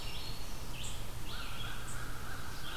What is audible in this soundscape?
Red-eyed Vireo, unknown mammal, American Crow